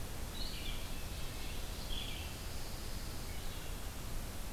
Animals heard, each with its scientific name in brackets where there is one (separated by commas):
Pine Warbler (Setophaga pinus), Wood Thrush (Hylocichla mustelina), Red-eyed Vireo (Vireo olivaceus)